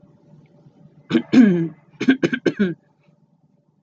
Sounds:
Throat clearing